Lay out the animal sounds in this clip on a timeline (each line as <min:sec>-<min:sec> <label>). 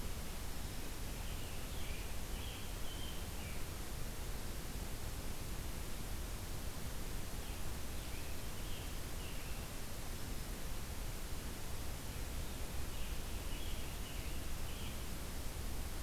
0:00.4-0:01.0 Black-throated Green Warbler (Setophaga virens)
0:01.0-0:03.6 Scarlet Tanager (Piranga olivacea)
0:07.3-0:09.7 Scarlet Tanager (Piranga olivacea)
0:10.1-0:10.6 Black-throated Green Warbler (Setophaga virens)
0:12.4-0:15.1 Scarlet Tanager (Piranga olivacea)